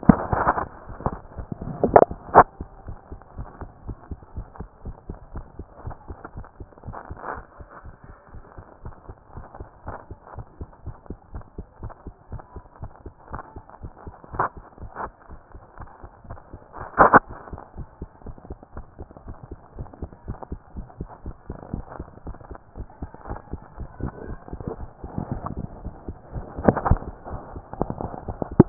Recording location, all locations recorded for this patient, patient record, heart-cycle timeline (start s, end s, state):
tricuspid valve (TV)
aortic valve (AV)+pulmonary valve (PV)+tricuspid valve (TV)+mitral valve (MV)
#Age: Child
#Sex: Female
#Height: 112.0 cm
#Weight: 20.6 kg
#Pregnancy status: False
#Murmur: Absent
#Murmur locations: nan
#Most audible location: nan
#Systolic murmur timing: nan
#Systolic murmur shape: nan
#Systolic murmur grading: nan
#Systolic murmur pitch: nan
#Systolic murmur quality: nan
#Diastolic murmur timing: nan
#Diastolic murmur shape: nan
#Diastolic murmur grading: nan
#Diastolic murmur pitch: nan
#Diastolic murmur quality: nan
#Outcome: Normal
#Campaign: 2014 screening campaign
0.00	3.26	unannotated
3.26	3.36	diastole
3.36	3.48	S1
3.48	3.60	systole
3.60	3.70	S2
3.70	3.86	diastole
3.86	3.96	S1
3.96	4.10	systole
4.10	4.18	S2
4.18	4.36	diastole
4.36	4.46	S1
4.46	4.58	systole
4.58	4.68	S2
4.68	4.84	diastole
4.84	4.96	S1
4.96	5.08	systole
5.08	5.18	S2
5.18	5.34	diastole
5.34	5.46	S1
5.46	5.58	systole
5.58	5.66	S2
5.66	5.84	diastole
5.84	5.96	S1
5.96	6.08	systole
6.08	6.18	S2
6.18	6.36	diastole
6.36	6.46	S1
6.46	6.60	systole
6.60	6.68	S2
6.68	6.86	diastole
6.86	6.96	S1
6.96	7.10	systole
7.10	7.18	S2
7.18	7.34	diastole
7.34	7.44	S1
7.44	7.60	systole
7.60	7.68	S2
7.68	7.84	diastole
7.84	7.94	S1
7.94	8.06	systole
8.06	8.16	S2
8.16	8.34	diastole
8.34	8.44	S1
8.44	8.56	systole
8.56	8.66	S2
8.66	8.84	diastole
8.84	8.94	S1
8.94	9.08	systole
9.08	9.16	S2
9.16	9.34	diastole
9.34	9.46	S1
9.46	9.58	systole
9.58	9.68	S2
9.68	9.86	diastole
9.86	9.96	S1
9.96	10.10	systole
10.10	10.18	S2
10.18	10.36	diastole
10.36	10.46	S1
10.46	10.60	systole
10.60	10.68	S2
10.68	10.86	diastole
10.86	10.96	S1
10.96	11.08	systole
11.08	11.18	S2
11.18	11.34	diastole
11.34	11.44	S1
11.44	11.56	systole
11.56	11.66	S2
11.66	11.82	diastole
11.82	11.92	S1
11.92	12.06	systole
12.06	12.14	S2
12.14	12.30	diastole
12.30	12.42	S1
12.42	12.54	systole
12.54	12.64	S2
12.64	12.80	diastole
12.80	12.90	S1
12.90	13.04	systole
13.04	13.14	S2
13.14	13.30	diastole
13.30	13.42	S1
13.42	13.54	systole
13.54	13.64	S2
13.64	13.82	diastole
13.82	28.69	unannotated